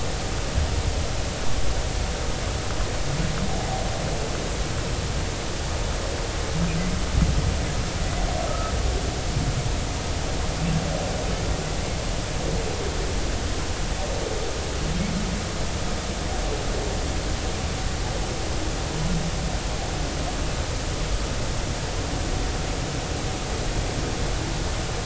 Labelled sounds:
8.4	8.7	humpback whale, 1.2 to 1.4 kHz

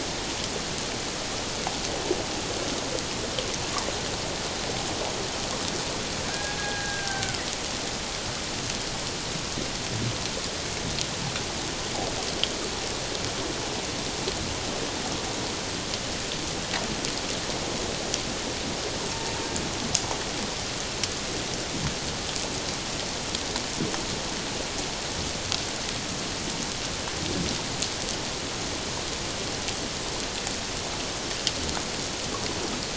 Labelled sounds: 6.3	7.4	killer whale, Bigg's (transient), call T02, 1.3 to 1.7 kHz

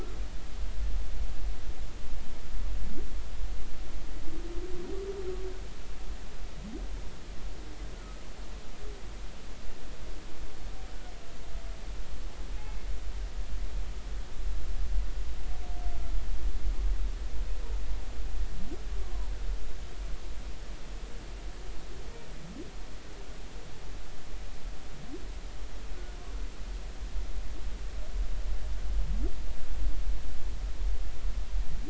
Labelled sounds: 12.6	12.9	humpback whale, 2.1 to 2.2 kHz
19.0	19.3	humpback whale, 0.86 to 1.2 kHz

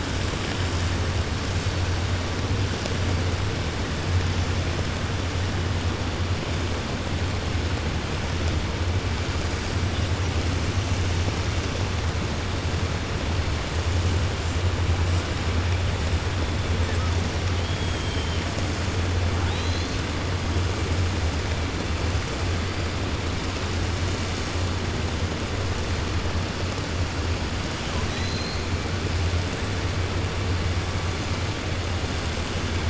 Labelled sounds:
17.5	18.4	killer whale, 3.0 to 3.4 kHz
19.4	20.0	killer whale, 2.4 to 4.7 kHz
28.0	28.6	killer whale, 1.9 to 6.9 kHz

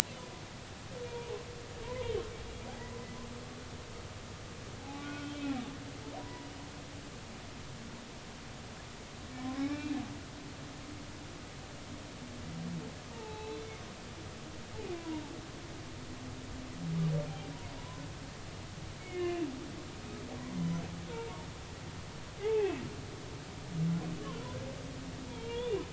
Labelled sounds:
1.0	1.4	humpback whale, 0.83 to 2.5 kHz
1.8	2.1	humpback whale, 0.90 to 1.1 kHz
4.8	5.5	humpback whale, 0.80 to 3.6 kHz
6.2	6.5	humpback whale, 0.93 to 1.0 kHz
9.4	10.0	humpback whale, 0.80 to 2.5 kHz
13.1	13.8	humpback whale, 0.80 to 4.1 kHz
14.8	15.3	humpback whale, 0.83 to 2.5 kHz
17.8	18.0	humpback whale, 0.93 to 1.1 kHz
19.1	19.5	humpback whale, 1.7 to 2.9 kHz
20.0	20.8	humpback whale, 2.0 to 3.1 kHz
22.4	22.8	humpback whale, 0.80 to 2.7 kHz
25.3	25.8	humpback whale, 0.86 to 3.6 kHz

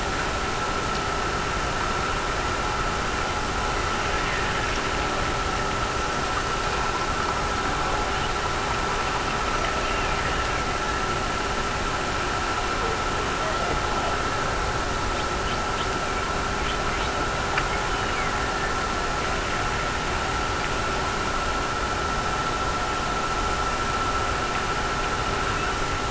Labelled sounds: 9.7	10.7	killer whale, Bigg's (transient), Gulf of Alaska transient, 1.5 to 2.9 kHz
17.6	19.1	killer whale, Bigg's (transient), Gulf of Alaska transient, 1.6 to 3.3 kHz

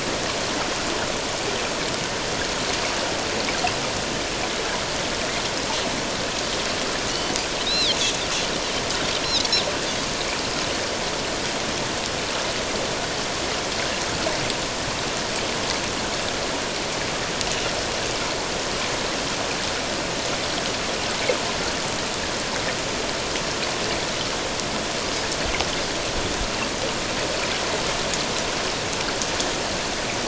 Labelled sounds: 7.1	8.0	Pacific white-sided dolphin, 2.8 to 4.2 kHz

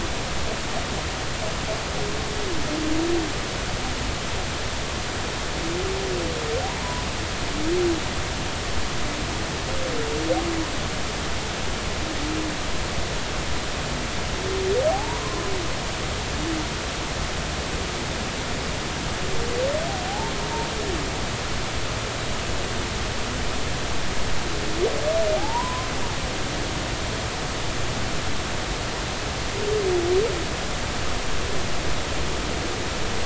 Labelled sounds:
14.9	15.2	humpback whale, 0.80 to 1.0 kHz
20.1	20.3	humpback whale, 0.80 to 0.96 kHz
25.4	25.9	humpback whale, 0.80 to 1.1 kHz

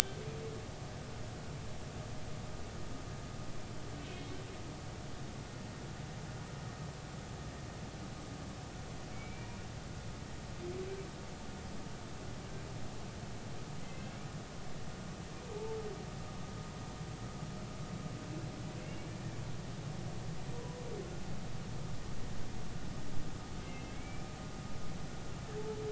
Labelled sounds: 9.1	9.6	humpback whale, 2.2 to 2.4 kHz
13.8	14.2	humpback whale, 1.9 to 2.8 kHz
15.5	15.8	humpback whale, 0.83 to 0.93 kHz
19.0	19.3	humpback whale, 2.2 to 2.4 kHz
23.7	24.2	humpback whale, 2.0 to 2.7 kHz

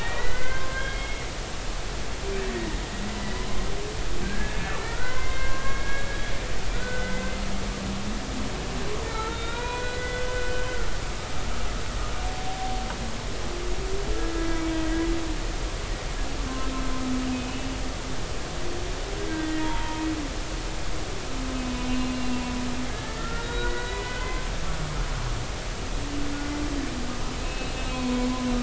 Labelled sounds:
0.0	1.2	humpback whale, 0.99 to 3.3 kHz
4.2	6.1	humpback whale, 0.96 to 2.3 kHz
6.7	7.3	humpback whale, 1.4 to 2.1 kHz
9.1	10.7	humpback whale, 0.83 to 4.0 kHz
17.3	17.7	humpback whale, 2.5 to 2.7 kHz
19.3	20.0	humpback whale, 0.86 to 2.1 kHz
22.1	24.5	humpback whale, 0.99 to 4.0 kHz
27.4	28.3	humpback whale, 0.93 to 4.4 kHz

